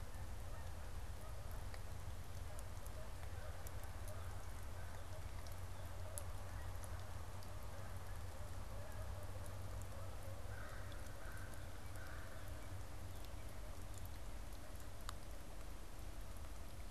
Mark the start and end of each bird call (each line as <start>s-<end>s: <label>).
0.0s-13.3s: Canada Goose (Branta canadensis)
10.2s-12.5s: American Crow (Corvus brachyrhynchos)
10.6s-13.7s: Northern Cardinal (Cardinalis cardinalis)